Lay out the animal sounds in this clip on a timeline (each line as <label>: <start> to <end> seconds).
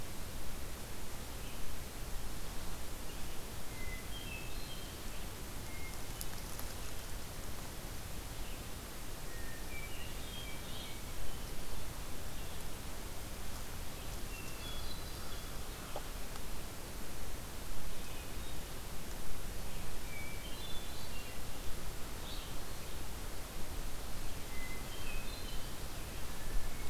Hermit Thrush (Catharus guttatus): 3.5 to 5.1 seconds
Hermit Thrush (Catharus guttatus): 5.4 to 6.4 seconds
Hermit Thrush (Catharus guttatus): 9.2 to 12.0 seconds
Hermit Thrush (Catharus guttatus): 14.1 to 15.6 seconds
Hermit Thrush (Catharus guttatus): 19.9 to 21.5 seconds
Red-eyed Vireo (Vireo olivaceus): 21.9 to 22.8 seconds
Hermit Thrush (Catharus guttatus): 24.2 to 25.8 seconds